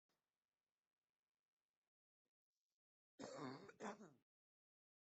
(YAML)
expert_labels:
- quality: poor
  cough_type: unknown
  dyspnea: false
  wheezing: false
  stridor: false
  choking: false
  congestion: false
  nothing: true
  severity: unknown
age: 31
gender: male
respiratory_condition: false
fever_muscle_pain: false
status: symptomatic